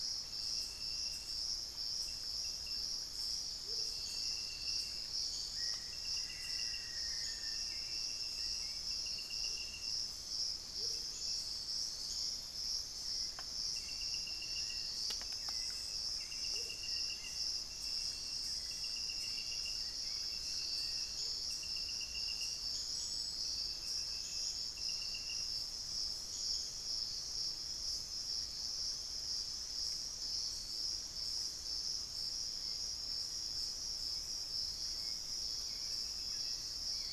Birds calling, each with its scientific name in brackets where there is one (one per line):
White-rumped Sirystes (Sirystes albocinereus)
Black-faced Antthrush (Formicarius analis)
Hauxwell's Thrush (Turdus hauxwelli)
Amazonian Motmot (Momotus momota)